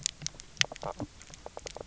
{"label": "biophony, knock croak", "recorder": "SoundTrap 300"}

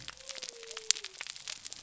{"label": "biophony", "recorder": "SoundTrap 300"}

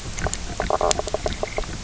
{"label": "biophony, knock croak", "recorder": "SoundTrap 300"}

